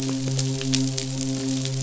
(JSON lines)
{"label": "biophony, midshipman", "recorder": "SoundTrap 500"}